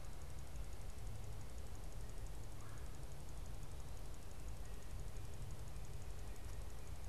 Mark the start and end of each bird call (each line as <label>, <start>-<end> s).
Red-bellied Woodpecker (Melanerpes carolinus), 2.5-3.0 s